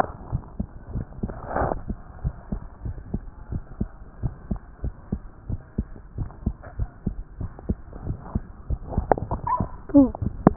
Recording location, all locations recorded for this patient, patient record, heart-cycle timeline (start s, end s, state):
tricuspid valve (TV)
aortic valve (AV)+pulmonary valve (PV)+tricuspid valve (TV)+mitral valve (MV)
#Age: Child
#Sex: Male
#Height: 103.0 cm
#Weight: 15.4 kg
#Pregnancy status: False
#Murmur: Absent
#Murmur locations: nan
#Most audible location: nan
#Systolic murmur timing: nan
#Systolic murmur shape: nan
#Systolic murmur grading: nan
#Systolic murmur pitch: nan
#Systolic murmur quality: nan
#Diastolic murmur timing: nan
#Diastolic murmur shape: nan
#Diastolic murmur grading: nan
#Diastolic murmur pitch: nan
#Diastolic murmur quality: nan
#Outcome: Normal
#Campaign: 2014 screening campaign
0.00	0.08	S2
0.08	0.32	diastole
0.32	0.42	S1
0.42	0.58	systole
0.58	0.68	S2
0.68	0.92	diastole
0.92	1.04	S1
1.04	1.22	systole
1.22	1.32	S2
1.32	1.60	diastole
1.60	1.72	S1
1.72	1.88	systole
1.88	1.98	S2
1.98	2.22	diastole
2.22	2.34	S1
2.34	2.52	systole
2.52	2.60	S2
2.60	2.84	diastole
2.84	2.96	S1
2.96	3.12	systole
3.12	3.22	S2
3.22	3.50	diastole
3.50	3.62	S1
3.62	3.80	systole
3.80	3.90	S2
3.90	4.22	diastole
4.22	4.34	S1
4.34	4.50	systole
4.50	4.60	S2
4.60	4.82	diastole
4.82	4.94	S1
4.94	5.12	systole
5.12	5.20	S2
5.20	5.48	diastole
5.48	5.60	S1
5.60	5.78	systole
5.78	5.86	S2
5.86	6.18	diastole
6.18	6.30	S1
6.30	6.46	systole
6.46	6.54	S2
6.54	6.78	diastole
6.78	6.90	S1
6.90	7.06	systole
7.06	7.16	S2
7.16	7.40	diastole
7.40	7.52	S1
7.52	7.68	systole
7.68	7.78	S2
7.78	8.06	diastole
8.06	8.18	S1
8.18	8.34	systole
8.34	8.44	S2
8.44	8.62	diastole